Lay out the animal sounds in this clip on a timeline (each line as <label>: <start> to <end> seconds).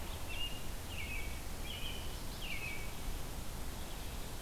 American Robin (Turdus migratorius): 0.0 to 3.0 seconds